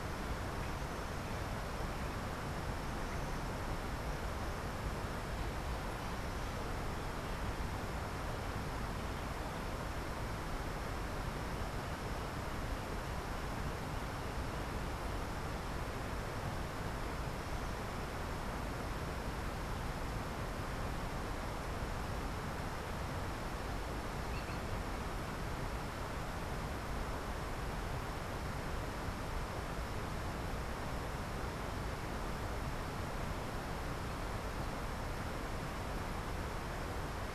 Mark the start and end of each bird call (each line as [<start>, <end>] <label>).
[24.07, 24.87] Green Jay (Cyanocorax yncas)